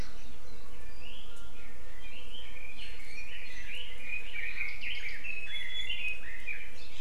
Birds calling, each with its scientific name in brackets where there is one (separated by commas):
Red-billed Leiothrix (Leiothrix lutea), Iiwi (Drepanis coccinea)